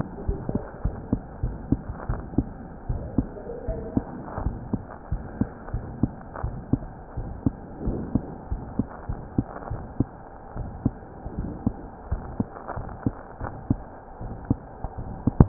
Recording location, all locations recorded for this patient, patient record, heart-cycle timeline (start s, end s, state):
aortic valve (AV)
aortic valve (AV)+pulmonary valve (PV)+tricuspid valve (TV)+mitral valve (MV)
#Age: Child
#Sex: Female
#Height: 108.0 cm
#Weight: 16.2 kg
#Pregnancy status: False
#Murmur: Present
#Murmur locations: aortic valve (AV)+mitral valve (MV)+pulmonary valve (PV)+tricuspid valve (TV)
#Most audible location: pulmonary valve (PV)
#Systolic murmur timing: Early-systolic
#Systolic murmur shape: Decrescendo
#Systolic murmur grading: II/VI
#Systolic murmur pitch: Medium
#Systolic murmur quality: Blowing
#Diastolic murmur timing: nan
#Diastolic murmur shape: nan
#Diastolic murmur grading: nan
#Diastolic murmur pitch: nan
#Diastolic murmur quality: nan
#Outcome: Abnormal
#Campaign: 2015 screening campaign
0.00	1.40	unannotated
1.40	1.58	S1
1.58	1.70	systole
1.70	1.84	S2
1.84	2.06	diastole
2.06	2.20	S1
2.20	2.35	systole
2.35	2.48	S2
2.48	2.88	diastole
2.88	3.00	S1
3.00	3.16	systole
3.16	3.30	S2
3.30	3.64	diastole
3.64	3.80	S1
3.80	3.94	systole
3.94	4.06	S2
4.06	4.40	diastole
4.40	4.58	S1
4.58	4.71	systole
4.71	4.81	S2
4.81	5.09	diastole
5.09	5.21	S1
5.21	5.38	systole
5.38	5.48	S2
5.48	5.72	diastole
5.72	5.83	S1
5.83	5.99	systole
5.99	6.11	S2
6.11	6.41	diastole
6.41	6.53	S1
6.53	6.71	systole
6.71	6.81	S2
6.81	7.16	diastole
7.16	7.32	S1
7.32	7.42	systole
7.42	7.54	S2
7.54	7.82	diastole
7.82	7.98	S1
7.98	8.12	systole
8.12	8.24	S2
8.24	8.49	diastole
8.49	8.64	S1
8.64	8.76	systole
8.76	8.86	S2
8.86	9.06	diastole
9.06	9.20	S1
9.20	9.34	systole
9.34	9.46	S2
9.46	9.69	diastole
9.69	9.83	S1
9.83	9.97	systole
9.97	10.08	S2
10.08	10.53	diastole
10.53	10.67	S1
10.67	10.82	systole
10.82	10.94	S2
10.94	11.34	diastole
11.34	11.52	S1
11.52	11.64	systole
11.64	11.76	S2
11.76	12.08	diastole
12.08	12.24	S1
12.24	12.38	systole
12.38	12.48	S2
12.48	12.76	diastole
12.76	12.88	S1
12.88	13.02	systole
13.02	13.14	S2
13.14	13.40	diastole
13.40	13.54	S1
13.54	13.68	systole
13.68	13.82	S2
13.82	14.16	diastole
14.16	14.32	S1
14.32	14.48	systole
14.48	14.58	S2
14.58	15.49	unannotated